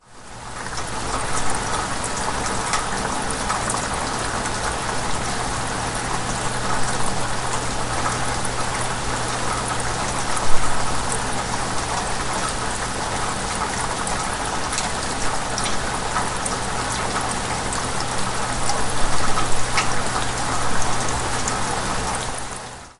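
Rain falls outside an open bedroom window. 0.0 - 23.0

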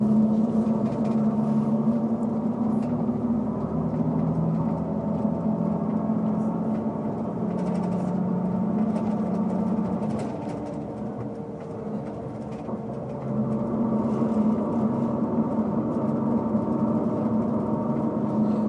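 An engine is running. 0.1 - 18.7
Two objects, possibly metal, collide. 0.1 - 18.7

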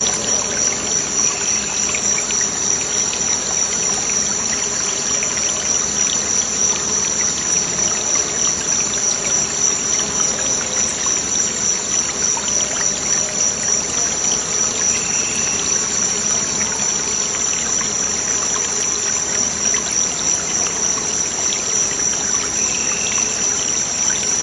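Insects buzzing in the background. 0.0 - 24.4
Water flowing in a river. 0.0 - 24.4
Birds chirping repeatedly in the background. 1.5 - 2.7
Birds chirping repeatedly in the background. 15.2 - 16.4
Birds chirping repeatedly in the background. 22.8 - 24.1

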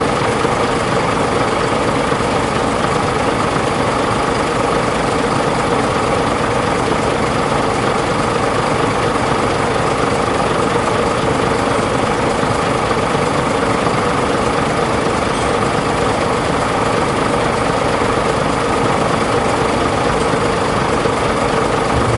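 The engine rumbles deeply. 0.0 - 22.2

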